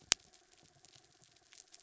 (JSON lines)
{"label": "anthrophony, mechanical", "recorder": "SoundTrap 300"}